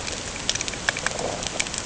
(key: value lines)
label: ambient
recorder: HydroMoth